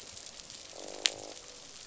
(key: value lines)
label: biophony, croak
recorder: SoundTrap 500